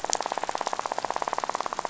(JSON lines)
{"label": "biophony, rattle", "recorder": "SoundTrap 500"}